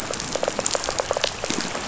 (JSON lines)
{"label": "biophony", "recorder": "SoundTrap 500"}